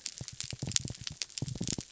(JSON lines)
{"label": "biophony", "recorder": "SoundTrap 300"}